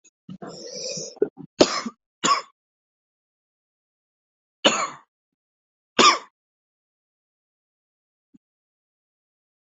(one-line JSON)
{"expert_labels": [{"quality": "good", "cough_type": "wet", "dyspnea": false, "wheezing": false, "stridor": false, "choking": false, "congestion": false, "nothing": true, "diagnosis": "upper respiratory tract infection", "severity": "mild"}], "age": 22, "gender": "male", "respiratory_condition": false, "fever_muscle_pain": false, "status": "symptomatic"}